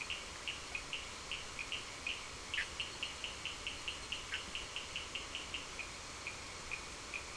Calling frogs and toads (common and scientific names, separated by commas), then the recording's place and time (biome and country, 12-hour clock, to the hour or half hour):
Cochran's lime tree frog (Sphaenorhynchus surdus)
Atlantic Forest, Brazil, ~7pm